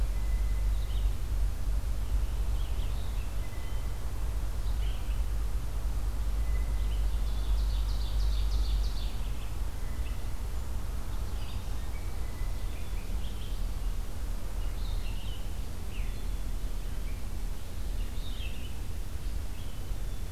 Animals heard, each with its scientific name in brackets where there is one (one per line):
Red-eyed Vireo (Vireo olivaceus)
Ovenbird (Seiurus aurocapilla)
Hermit Thrush (Catharus guttatus)
Blue Jay (Cyanocitta cristata)